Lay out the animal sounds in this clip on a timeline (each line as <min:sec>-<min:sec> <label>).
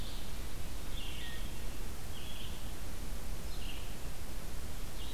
0:00.0-0:05.1 Red-eyed Vireo (Vireo olivaceus)